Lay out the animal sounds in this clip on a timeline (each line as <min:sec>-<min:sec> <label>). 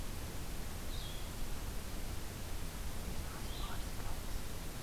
0:00.0-0:04.8 Blue-headed Vireo (Vireo solitarius)